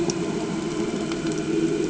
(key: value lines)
label: anthrophony, boat engine
recorder: HydroMoth